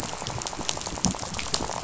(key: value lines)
label: biophony, rattle
recorder: SoundTrap 500